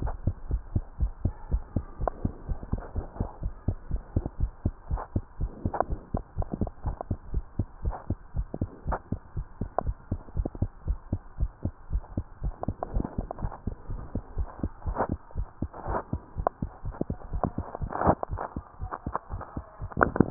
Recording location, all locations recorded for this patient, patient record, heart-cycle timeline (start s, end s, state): tricuspid valve (TV)
aortic valve (AV)+pulmonary valve (PV)+tricuspid valve (TV)+mitral valve (MV)
#Age: nan
#Sex: Male
#Height: 123.0 cm
#Weight: 29.2 kg
#Pregnancy status: False
#Murmur: Absent
#Murmur locations: nan
#Most audible location: nan
#Systolic murmur timing: nan
#Systolic murmur shape: nan
#Systolic murmur grading: nan
#Systolic murmur pitch: nan
#Systolic murmur quality: nan
#Diastolic murmur timing: nan
#Diastolic murmur shape: nan
#Diastolic murmur grading: nan
#Diastolic murmur pitch: nan
#Diastolic murmur quality: nan
#Outcome: Normal
#Campaign: 2015 screening campaign
0.00	0.34	unannotated
0.34	0.46	diastole
0.46	0.62	S1
0.62	0.70	systole
0.70	0.86	S2
0.86	1.00	diastole
1.00	1.14	S1
1.14	1.22	systole
1.22	1.36	S2
1.36	1.48	diastole
1.48	1.64	S1
1.64	1.74	systole
1.74	1.86	S2
1.86	2.00	diastole
2.00	2.12	S1
2.12	2.20	systole
2.20	2.32	S2
2.32	2.46	diastole
2.46	2.58	S1
2.58	2.70	systole
2.70	2.84	S2
2.84	2.96	diastole
2.96	3.06	S1
3.06	3.18	systole
3.18	3.28	S2
3.28	3.40	diastole
3.40	3.54	S1
3.54	3.64	systole
3.64	3.76	S2
3.76	3.88	diastole
3.88	4.02	S1
4.02	4.12	systole
4.12	4.24	S2
4.24	4.38	diastole
4.38	4.54	S1
4.54	4.64	systole
4.64	4.76	S2
4.76	4.90	diastole
4.90	5.04	S1
5.04	5.14	systole
5.14	5.26	S2
5.26	5.40	diastole
5.40	5.54	S1
5.54	5.64	systole
5.64	5.74	S2
5.74	5.90	diastole
5.90	6.00	S1
6.00	6.10	systole
6.10	6.24	S2
6.24	6.38	diastole
6.38	6.48	S1
6.48	6.60	systole
6.60	6.72	S2
6.72	6.86	diastole
6.86	6.98	S1
6.98	7.08	systole
7.08	7.18	S2
7.18	7.30	diastole
7.30	7.44	S1
7.44	7.58	systole
7.58	7.68	S2
7.68	7.82	diastole
7.82	7.96	S1
7.96	8.08	systole
8.08	8.18	S2
8.18	8.34	diastole
8.34	8.48	S1
8.48	8.60	systole
8.60	8.70	S2
8.70	8.86	diastole
8.86	8.98	S1
8.98	9.08	systole
9.08	9.20	S2
9.20	9.36	diastole
9.36	9.46	S1
9.46	9.60	systole
9.60	9.70	S2
9.70	9.84	diastole
9.84	9.96	S1
9.96	10.10	systole
10.10	10.22	S2
10.22	10.36	diastole
10.36	10.50	S1
10.50	10.60	systole
10.60	10.72	S2
10.72	10.86	diastole
10.86	11.00	S1
11.00	11.10	systole
11.10	11.22	S2
11.22	11.38	diastole
11.38	11.52	S1
11.52	11.64	systole
11.64	11.74	S2
11.74	11.92	diastole
11.92	12.04	S1
12.04	12.16	systole
12.16	12.26	S2
12.26	12.42	diastole
12.42	20.30	unannotated